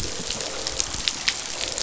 {"label": "biophony, croak", "recorder": "SoundTrap 500"}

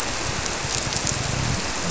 {"label": "biophony", "recorder": "SoundTrap 300"}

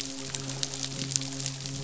{"label": "biophony, midshipman", "recorder": "SoundTrap 500"}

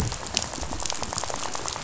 {"label": "biophony, rattle", "recorder": "SoundTrap 500"}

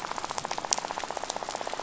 {"label": "biophony, rattle", "recorder": "SoundTrap 500"}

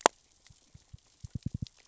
{"label": "biophony, knock", "recorder": "SoundTrap 600 or HydroMoth"}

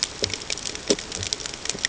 {"label": "ambient", "recorder": "HydroMoth"}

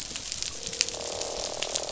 {"label": "biophony, croak", "recorder": "SoundTrap 500"}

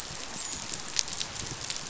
{"label": "biophony, dolphin", "recorder": "SoundTrap 500"}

